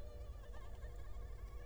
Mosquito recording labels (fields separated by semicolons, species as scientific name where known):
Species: Culex quinquefasciatus; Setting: cup